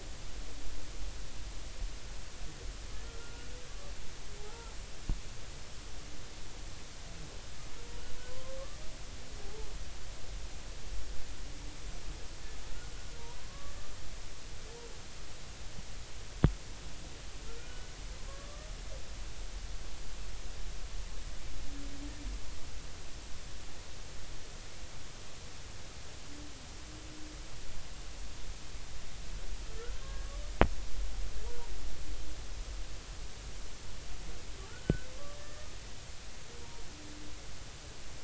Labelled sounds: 3.0	3.5	humpback whale, 1.3 to 1.5 kHz
4.4	4.7	humpback whale, 0.80 to 1.4 kHz
8.3	9.7	humpback whale, 0.80 to 1.1 kHz
13.5	13.8	humpback whale, 1.0 to 1.2 kHz
17.5	17.9	humpback whale, 1.3 to 1.5 kHz
18.3	18.7	humpback whale, 1.0 to 1.3 kHz
30.0	30.3	humpback whale, 1.0 to 1.7 kHz
31.5	31.7	humpback whale, 0.86 to 0.99 kHz
34.7	35.7	humpback whale, 1.3 to 1.9 kHz

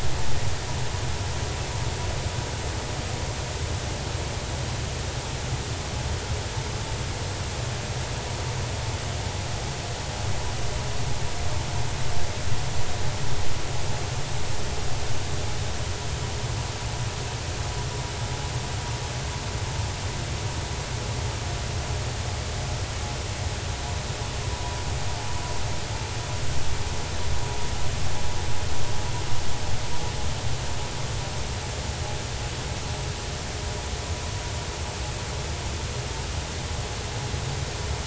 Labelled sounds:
24.5	24.8	vessel noise, 0.93 to 1.0 kHz

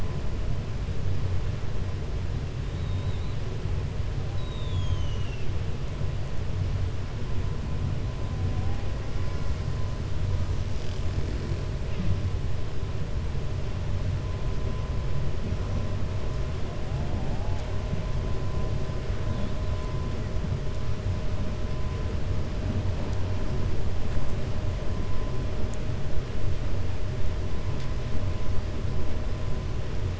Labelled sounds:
2.7	3.4	killer whale, 3.5 to 4.1 kHz
4.3	5.5	killer whale, 2.5 to 7.4 kHz

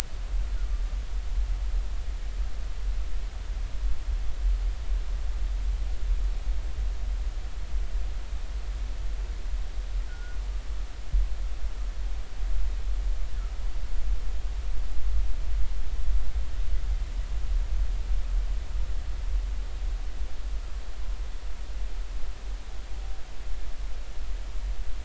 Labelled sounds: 10.1	10.4	humpback whale, 1.4 to 1.5 kHz

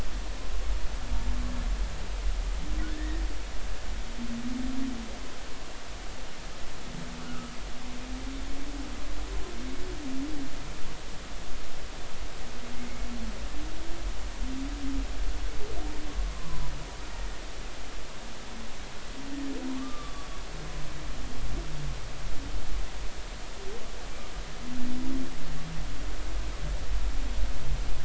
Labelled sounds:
2.8	3.2	humpback whale, 1.4 to 2.0 kHz
7.2	7.5	humpback whale, 1.2 to 1.5 kHz
16.4	16.7	humpback whale, 0.93 to 1.2 kHz
19.7	20.3	humpback whale, 0.96 to 3.6 kHz

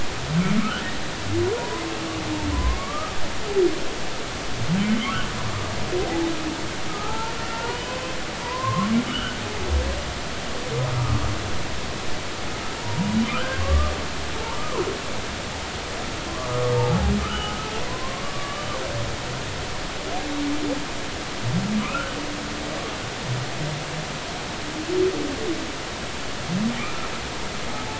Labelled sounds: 1.6	1.9	humpback whale, 0.90 to 1.1 kHz
2.5	3.2	humpback whale, 0.96 to 1.3 kHz
4.9	5.1	humpback whale, 2.9 to 3.3 kHz
6.9	7.9	humpback whale, 0.80 to 3.1 kHz
8.4	9.4	humpback whale, 0.90 to 3.2 kHz
10.9	11.3	humpback whale, 1.1 to 1.3 kHz
12.7	13.6	humpback whale, 0.90 to 1.7 kHz
14.4	14.9	humpback whale, 0.83 to 1.3 kHz
16.7	18.7	humpback whale, 0.80 to 3.0 kHz
21.8	22.1	humpback whale, 0.99 to 1.6 kHz
26.8	27.1	humpback whale, 1.1 to 1.4 kHz

